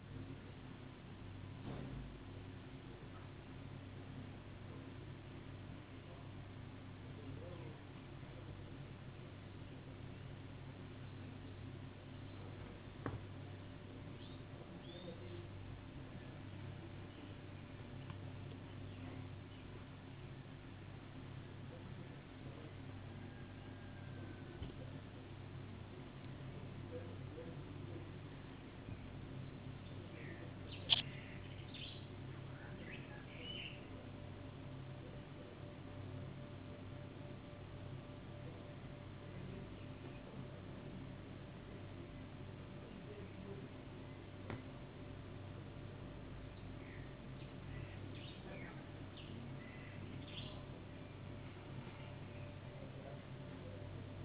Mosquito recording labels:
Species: no mosquito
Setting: insect culture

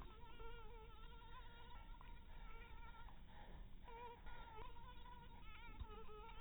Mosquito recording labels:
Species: mosquito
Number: one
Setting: cup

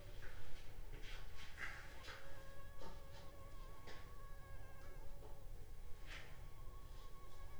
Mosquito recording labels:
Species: Anopheles funestus s.s.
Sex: female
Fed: unfed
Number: one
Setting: cup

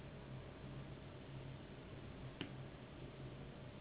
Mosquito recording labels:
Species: Anopheles gambiae s.s.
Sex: female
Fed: unfed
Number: one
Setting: insect culture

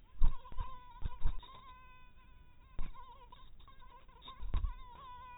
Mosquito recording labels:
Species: mosquito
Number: one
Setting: cup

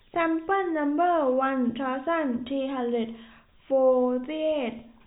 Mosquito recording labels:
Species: no mosquito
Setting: cup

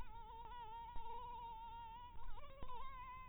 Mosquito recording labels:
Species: Anopheles barbirostris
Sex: female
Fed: blood-fed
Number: one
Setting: cup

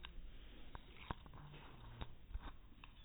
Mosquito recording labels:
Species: no mosquito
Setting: cup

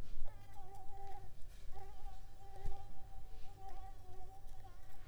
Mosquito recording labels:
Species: Mansonia uniformis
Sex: female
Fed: unfed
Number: one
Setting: cup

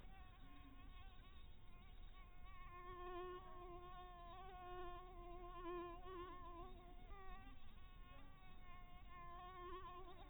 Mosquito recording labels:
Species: mosquito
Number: one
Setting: cup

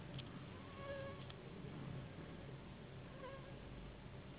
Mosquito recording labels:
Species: Anopheles gambiae s.s.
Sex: female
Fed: unfed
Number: one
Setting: insect culture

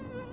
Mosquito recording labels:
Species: Anopheles dirus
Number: one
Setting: insect culture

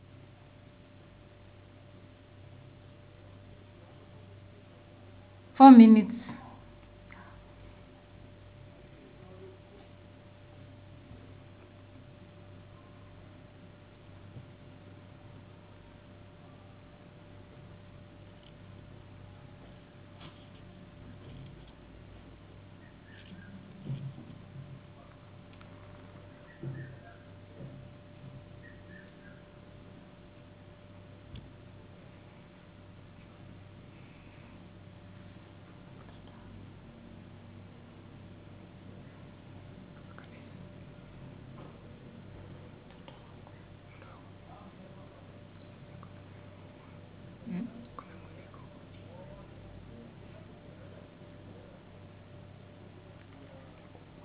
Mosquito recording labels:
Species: no mosquito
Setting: insect culture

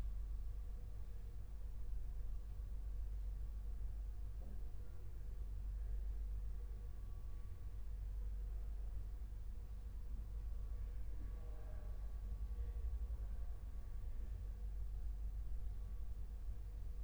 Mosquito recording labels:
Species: no mosquito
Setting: cup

